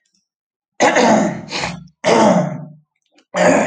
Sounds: Throat clearing